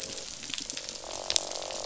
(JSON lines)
{"label": "biophony, croak", "recorder": "SoundTrap 500"}